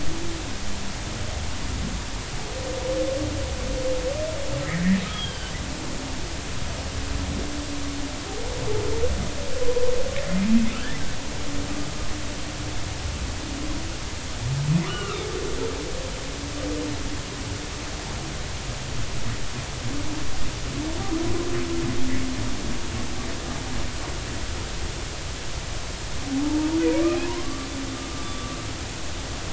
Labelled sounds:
5.1	5.5	humpback whale, 1.5 to 3.4 kHz
14.9	15.2	humpback whale, 1.1 to 3.1 kHz
26.4	27.7	humpback whale, 0.83 to 2.6 kHz
28.2	28.6	humpback whale, 1.1 to 1.2 kHz

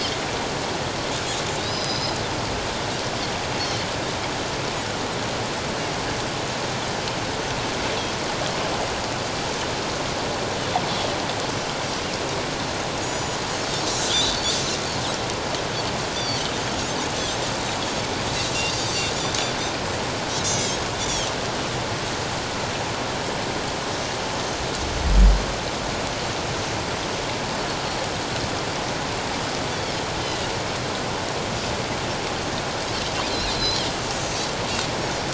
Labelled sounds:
1.6	2.2	Pacific white-sided dolphin, 3.7 to 6.1 kHz
12.9	14.6	Pacific white-sided dolphin, 3.2 to 7.9 kHz
16.1	16.4	Pacific white-sided dolphin, 4.2 to 6.0 kHz
18.6	19.1	Pacific white-sided dolphin, 4.3 to 7.9 kHz
20.4	21.3	Pacific white-sided dolphin, 3.0 to 7.6 kHz
29.7	30.0	Pacific white-sided dolphin, 4.2 to 4.7 kHz
33.3	34.5	Pacific white-sided dolphin, 3.9 to 4.7 kHz

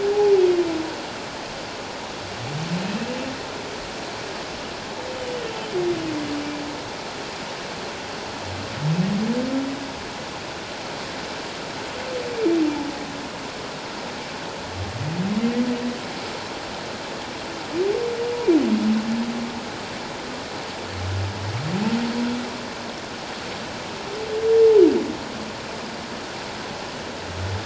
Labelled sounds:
5.1	5.5	humpback whale, 2.8 to 3.1 kHz

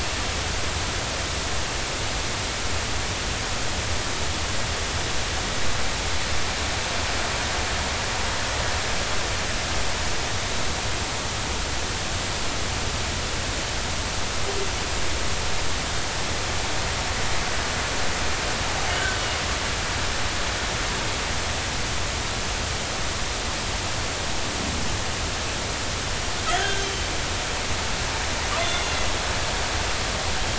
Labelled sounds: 26.6	26.8	killer whale, northern resident, G clan, 1.5 to 1.8 kHz
28.6	28.9	killer whale, northern resident, G clan, 3.4 to 3.6 kHz

